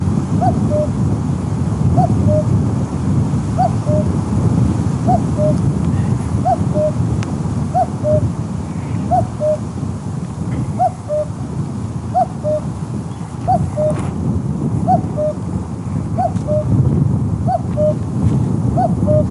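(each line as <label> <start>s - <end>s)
A steady, rushing monotone hum. 0.0s - 19.3s
A cuckoo calls rhythmically in a repeating pattern. 0.3s - 19.3s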